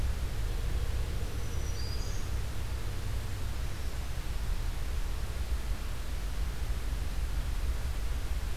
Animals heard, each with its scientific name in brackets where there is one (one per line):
Black-throated Green Warbler (Setophaga virens)